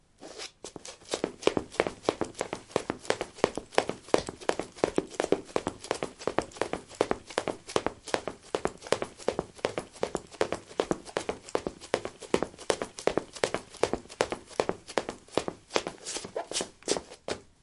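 Running footsteps. 0.2 - 17.5

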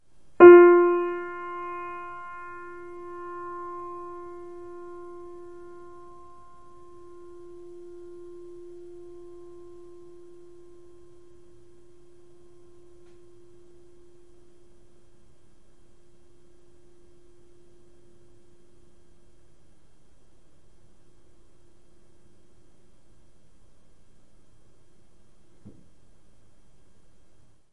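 A piano key is played and the sound sustains until it fades completely. 0.3 - 6.7

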